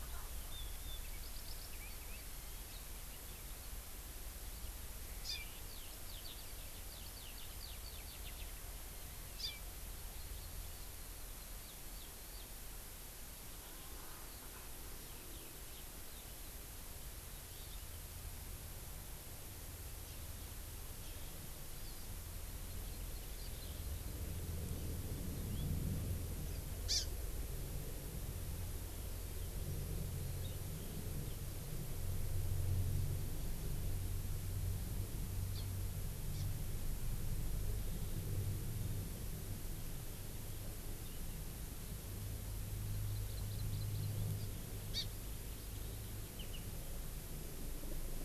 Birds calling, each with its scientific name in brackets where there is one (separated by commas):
Hawaii Amakihi (Chlorodrepanis virens), Eurasian Skylark (Alauda arvensis)